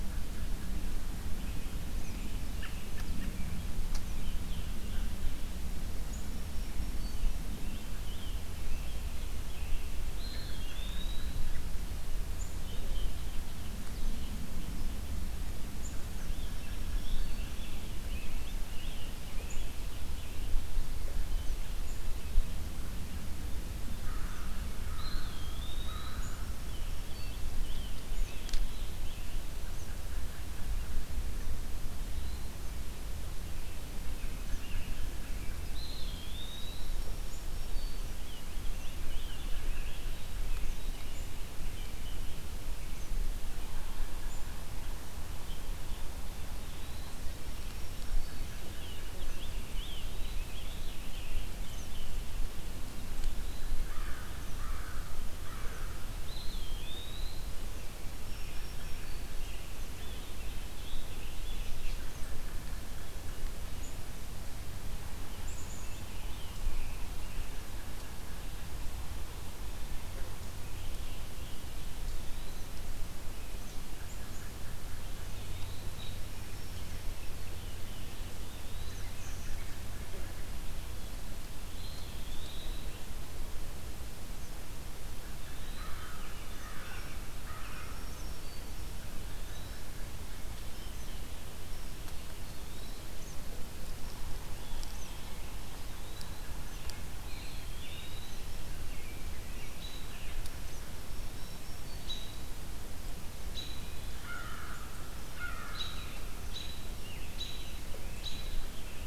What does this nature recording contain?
American Robin, Scarlet Tanager, Eastern Wood-Pewee, American Crow, Black-throated Green Warbler